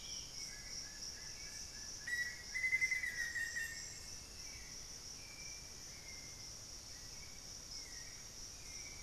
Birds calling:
Hauxwell's Thrush (Turdus hauxwelli), Black-faced Antthrush (Formicarius analis), Plain-winged Antshrike (Thamnophilus schistaceus)

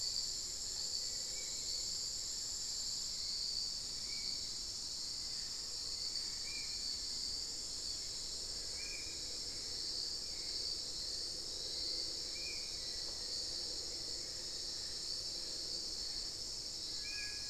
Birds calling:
Spot-winged Antshrike (Pygiptila stellaris), Hauxwell's Thrush (Turdus hauxwelli), Little Tinamou (Crypturellus soui), Black-faced Antthrush (Formicarius analis)

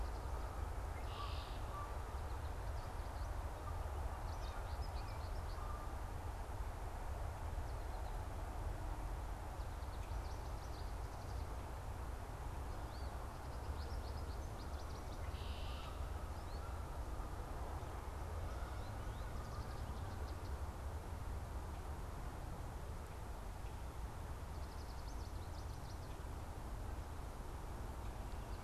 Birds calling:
American Goldfinch (Spinus tristis), Red-winged Blackbird (Agelaius phoeniceus)

